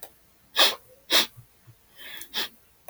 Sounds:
Sniff